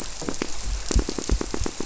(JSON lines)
{"label": "biophony, squirrelfish (Holocentrus)", "recorder": "SoundTrap 300"}